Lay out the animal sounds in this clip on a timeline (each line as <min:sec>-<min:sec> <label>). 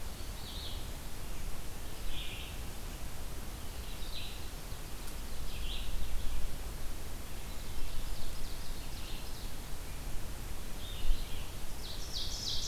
0:00.0-0:12.7 Red-eyed Vireo (Vireo olivaceus)
0:04.3-0:06.5 Ovenbird (Seiurus aurocapilla)
0:07.2-0:10.0 Ovenbird (Seiurus aurocapilla)
0:12.0-0:12.7 Ovenbird (Seiurus aurocapilla)